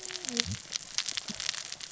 {"label": "biophony, cascading saw", "recorder": "SoundTrap 600 or HydroMoth"}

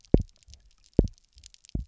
{"label": "biophony, double pulse", "recorder": "SoundTrap 300"}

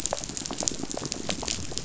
{"label": "biophony, pulse", "recorder": "SoundTrap 500"}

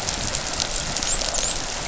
{"label": "biophony, dolphin", "recorder": "SoundTrap 500"}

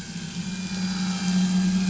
{"label": "anthrophony, boat engine", "recorder": "SoundTrap 500"}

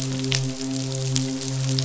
{"label": "biophony, midshipman", "recorder": "SoundTrap 500"}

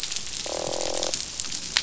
{"label": "biophony, croak", "recorder": "SoundTrap 500"}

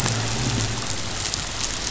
{"label": "anthrophony, boat engine", "recorder": "SoundTrap 500"}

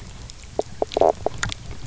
{"label": "biophony, knock croak", "recorder": "SoundTrap 300"}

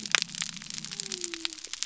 {"label": "biophony", "recorder": "SoundTrap 300"}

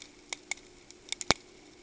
{"label": "ambient", "recorder": "HydroMoth"}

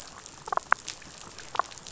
{"label": "biophony, damselfish", "recorder": "SoundTrap 500"}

